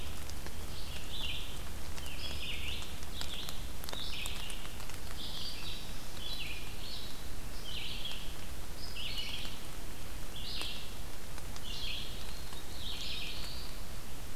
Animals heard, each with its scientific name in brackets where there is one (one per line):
Eastern Wood-Pewee (Contopus virens)
Red-eyed Vireo (Vireo olivaceus)